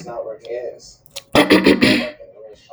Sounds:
Throat clearing